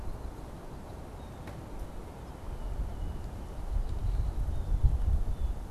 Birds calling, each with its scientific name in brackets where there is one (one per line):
Red-winged Blackbird (Agelaius phoeniceus)
Blue Jay (Cyanocitta cristata)